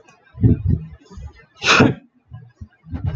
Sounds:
Sneeze